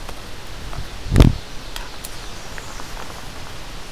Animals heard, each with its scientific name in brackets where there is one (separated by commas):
Ovenbird (Seiurus aurocapilla), American Redstart (Setophaga ruticilla)